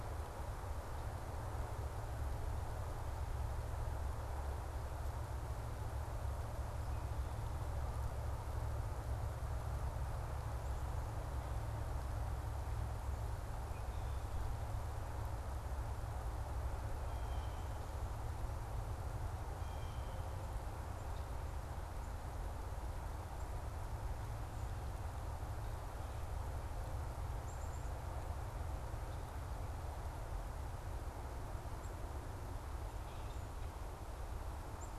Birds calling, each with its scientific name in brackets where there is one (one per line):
Black-capped Chickadee (Poecile atricapillus)